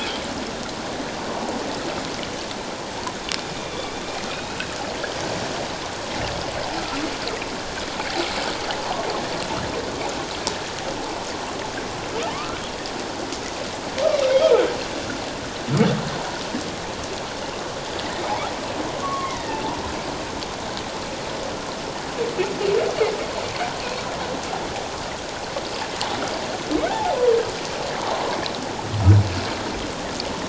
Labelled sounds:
3.6	3.9	humpback whale, 3.2 to 3.7 kHz
12.3	12.6	humpback whale, 0.81 to 1.5 kHz
19.0	19.6	humpback whale, 0.91 to 2.2 kHz
26.9	27.2	humpback whale, 0.78 to 0.94 kHz

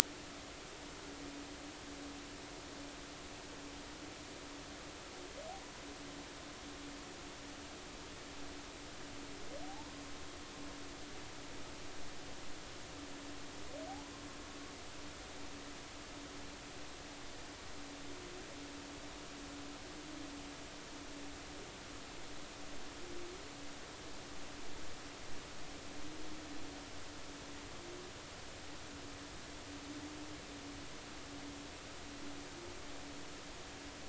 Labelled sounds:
9.6	10.0	humpback whale, 0.80 to 1.1 kHz

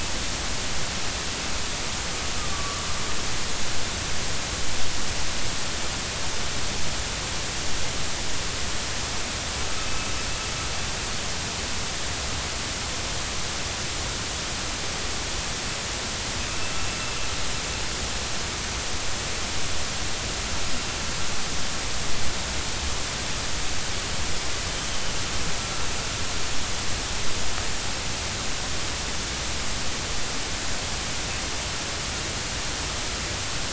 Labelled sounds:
2.5	2.8	killer whale, northern resident, A clan, AB subclan, 1.1 to 1.2 kHz
9.8	10.1	killer whale, northern resident, A clan, AB subclan, 2.5 to 2.7 kHz

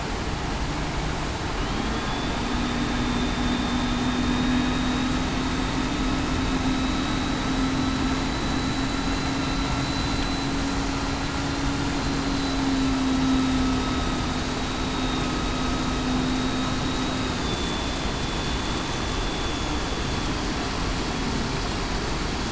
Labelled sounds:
3.0	3.4	vessel noise, 3.56 to 3.61 kHz
4.0	5.2	vessel noise, 3.6 to 3.8 kHz
7.2	7.5	vessel noise, 3.91 to 3.94 kHz
8.0	8.8	vessel noise, 3.9 to 4.0 kHz
9.8	10.2	vessel noise, 3.96 to 4.01 kHz
13.0	13.4	vessel noise, 3.8 to 3.9 kHz
13.7	14.2	vessel noise, 3.7 to 3.8 kHz
14.9	15.3	vessel noise, 3.7 to 3.8 kHz
17.5	18.0	vessel noise, 3.4 to 3.6 kHz
19.2	19.7	vessel noise, 3.35 to 3.42 kHz

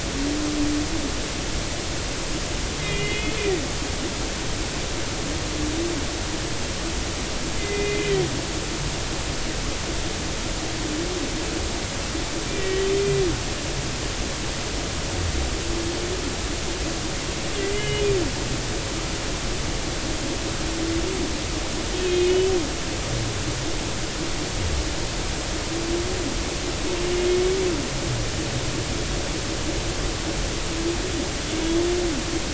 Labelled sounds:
2.8	3.6	humpback whale, 1.8 to 3.5 kHz
7.6	8.2	humpback whale, 1.8 to 2.5 kHz
12.6	12.9	humpback whale, 1.9 to 2.0 kHz
17.6	18.0	humpback whale, 1.9 to 3.1 kHz
22.0	22.5	humpback whale, 2.1 to 3.1 kHz
27.3	27.6	humpback whale, 2.1 to 2.3 kHz

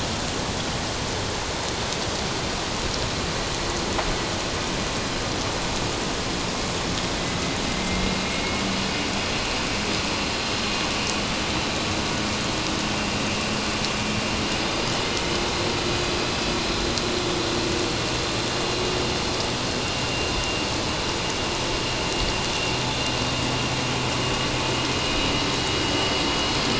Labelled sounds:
7.7	8.6	vessel noise, 2.0 to 2.2 kHz
20.0	20.3	vessel noise, 2.75 to 2.81 kHz

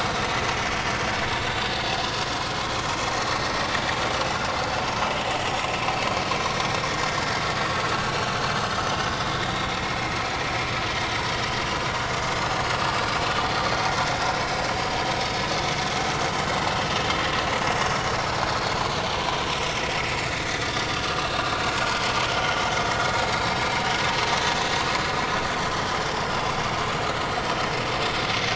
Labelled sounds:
6.3	7.2	vessel noise, 5.8 to 7.1 kHz
9.5	9.8	vessel noise, 5.5 to 5.8 kHz
12.3	12.6	vessel noise, 5.0 to 5.3 kHz
18.5	18.8	vessel noise, 4.2 to 4.5 kHz

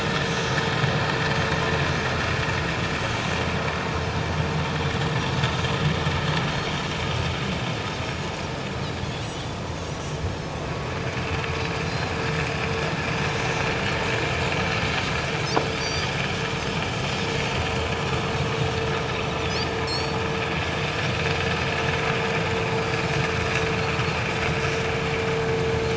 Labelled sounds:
9.2	9.5	Pacific white-sided dolphin, 2.9 to 3.2 kHz
11.9	12.1	Pacific white-sided dolphin, 4.0 to 4.2 kHz
15.8	16.1	Pacific white-sided dolphin, 4.5 to 6.0 kHz
19.8	20.2	Pacific white-sided dolphin, 4.2 to 7.9 kHz

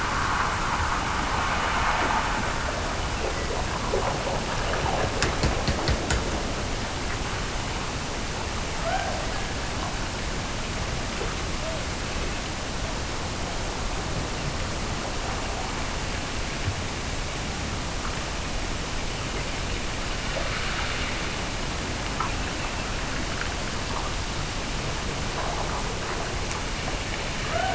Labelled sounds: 2.9	3.7	killer whale, Bigg's (transient), Gulf of Alaska transient, 1.7 to 3.1 kHz
8.7	9.7	killer whale, Bigg's (transient), Gulf of Alaska transient, 0.50 to 1.8 kHz
27.4	27.7	killer whale, Bigg's (transient), Gulf of Alaska transient, 0.46 to 2.9 kHz

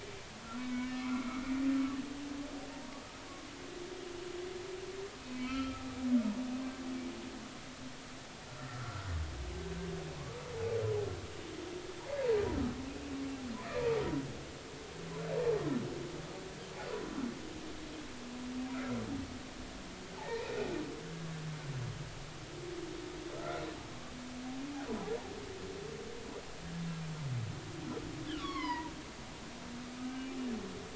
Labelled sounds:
0.6	1.4	humpback whale, 1.1 to 2.3 kHz
5.3	5.9	humpback whale, 1.2 to 3.3 kHz
8.6	9.1	humpback whale, 1.3 to 1.5 kHz
13.7	14.0	humpback whale, 2.3 to 2.6 kHz
15.4	15.6	humpback whale, 0.80 to 0.96 kHz
20.2	20.6	humpback whale, 0.80 to 2.6 kHz
23.4	23.6	humpback whale, 1.2 to 1.5 kHz
28.4	28.9	humpback whale, 0.86 to 5.2 kHz
30.0	30.3	humpback whale, 1.5 to 1.6 kHz

